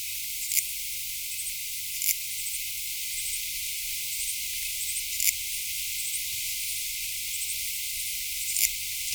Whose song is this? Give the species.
Tessellana orina